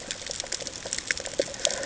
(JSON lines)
{"label": "ambient", "recorder": "HydroMoth"}